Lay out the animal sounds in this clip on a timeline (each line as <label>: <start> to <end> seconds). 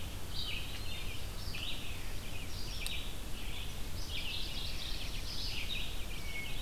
Red-eyed Vireo (Vireo olivaceus): 0.0 to 6.6 seconds
Hermit Thrush (Catharus guttatus): 0.3 to 1.6 seconds
Black-throated Blue Warbler (Setophaga caerulescens): 3.8 to 5.5 seconds
Mourning Warbler (Geothlypis philadelphia): 4.0 to 5.1 seconds
Hermit Thrush (Catharus guttatus): 6.0 to 6.6 seconds